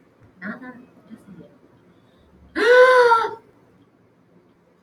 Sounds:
Sigh